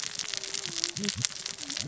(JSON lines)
{"label": "biophony, cascading saw", "recorder": "SoundTrap 600 or HydroMoth"}